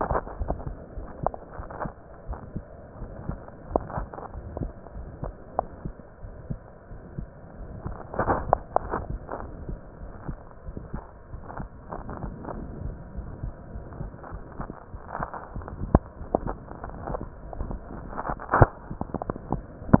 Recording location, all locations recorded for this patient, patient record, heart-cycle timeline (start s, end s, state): pulmonary valve (PV)
aortic valve (AV)+pulmonary valve (PV)+tricuspid valve (TV)+mitral valve (MV)
#Age: Child
#Sex: Female
#Height: 149.0 cm
#Weight: 32.9 kg
#Pregnancy status: False
#Murmur: Present
#Murmur locations: aortic valve (AV)+mitral valve (MV)+pulmonary valve (PV)+tricuspid valve (TV)
#Most audible location: tricuspid valve (TV)
#Systolic murmur timing: Holosystolic
#Systolic murmur shape: Plateau
#Systolic murmur grading: II/VI
#Systolic murmur pitch: Medium
#Systolic murmur quality: Harsh
#Diastolic murmur timing: nan
#Diastolic murmur shape: nan
#Diastolic murmur grading: nan
#Diastolic murmur pitch: nan
#Diastolic murmur quality: nan
#Outcome: Abnormal
#Campaign: 2015 screening campaign
0.00	2.26	unannotated
2.26	2.38	S1
2.38	2.54	systole
2.54	2.64	S2
2.64	2.94	diastole
2.94	3.10	S1
3.10	3.26	systole
3.26	3.40	S2
3.40	3.68	diastole
3.68	3.84	S1
3.84	3.96	systole
3.96	4.10	S2
4.10	4.32	diastole
4.32	4.44	S1
4.44	4.58	systole
4.58	4.72	S2
4.72	4.94	diastole
4.94	5.06	S1
5.06	5.20	systole
5.20	5.34	S2
5.34	5.58	diastole
5.58	5.68	S1
5.68	5.84	systole
5.84	5.94	S2
5.94	6.22	diastole
6.22	6.32	S1
6.32	6.48	systole
6.48	6.62	S2
6.62	6.90	diastole
6.90	6.98	S1
6.98	7.16	systole
7.16	7.30	S2
7.30	7.58	diastole
7.58	7.68	S1
7.68	7.84	systole
7.84	7.98	S2
7.98	8.81	unannotated
8.81	8.94	S1
8.94	9.08	systole
9.08	9.22	S2
9.22	9.42	diastole
9.42	9.52	S1
9.52	9.66	systole
9.66	9.80	S2
9.80	10.02	diastole
10.02	10.12	S1
10.12	10.26	systole
10.26	10.40	S2
10.40	10.65	diastole
10.65	10.78	S1
10.78	10.92	systole
10.92	11.02	S2
11.02	11.30	diastole
11.30	11.40	S1
11.40	11.56	systole
11.56	11.68	S2
11.68	11.94	diastole
11.94	12.08	S1
12.08	12.22	systole
12.22	12.34	S2
12.34	12.56	diastole
12.56	12.68	S1
12.68	12.82	systole
12.82	12.96	S2
12.96	13.16	diastole
13.16	13.28	S1
13.28	13.42	systole
13.42	13.56	S2
13.56	13.74	diastole
13.74	13.86	S1
13.86	13.98	systole
13.98	14.12	S2
14.12	14.32	diastole
14.32	14.44	S1
14.44	14.58	systole
14.58	14.68	S2
14.68	20.00	unannotated